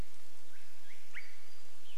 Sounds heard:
Swainson's Thrush call

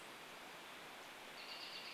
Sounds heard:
American Robin call

